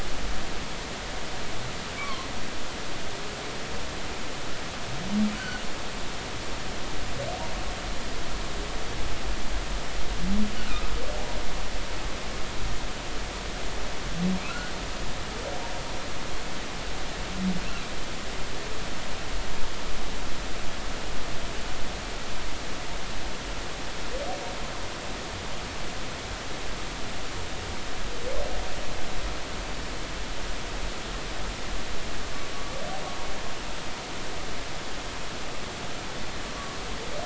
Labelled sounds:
2.0	2.3	humpback whale, 0.99 to 1.2 kHz
5.3	5.6	humpback whale, 1.4 to 1.6 kHz
10.7	10.9	humpback whale, 1.2 to 1.5 kHz
14.5	14.7	humpback whale, 1.3 to 1.6 kHz

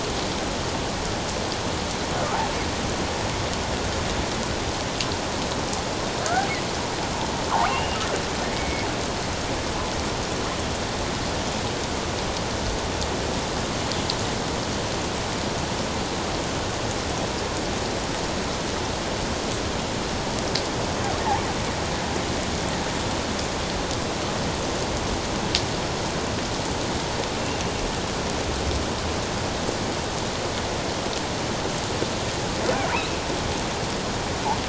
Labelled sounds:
7.7	8.0	killer whale, offshore, 2.6 to 2.9 kHz
8.5	8.9	killer whale, offshore, 2.1 to 2.3 kHz
32.9	33.2	killer whale, offshore, 2.2 to 2.8 kHz

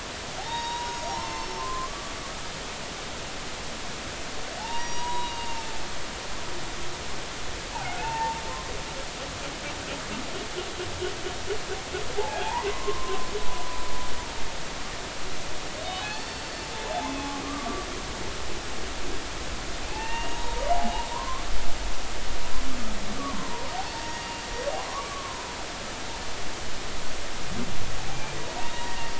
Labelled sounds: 0.4	2.1	humpback whale, 0.80 to 6.7 kHz
4.6	5.7	humpback whale, 0.80 to 6.8 kHz
6.1	6.5	humpback whale, 3.7 to 3.9 kHz
7.7	8.4	humpback whale, 0.80 to 2.8 kHz
12.2	13.8	humpback whale, 0.80 to 2.6 kHz
15.8	16.7	humpback whale, 0.80 to 4.5 kHz
17.1	17.9	humpback whale, 1.1 to 2.6 kHz
19.9	21.4	humpback whale, 0.80 to 3.8 kHz
23.2	23.7	humpback whale, 0.90 to 1.3 kHz
24.9	25.5	humpback whale, 0.96 to 1.2 kHz
28.6	29.0	humpback whale, 0.90 to 3.8 kHz

